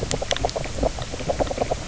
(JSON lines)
{"label": "biophony, knock croak", "recorder": "SoundTrap 300"}